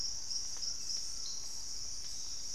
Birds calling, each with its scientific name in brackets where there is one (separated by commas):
Collared Trogon (Trogon collaris), Purple-throated Fruitcrow (Querula purpurata)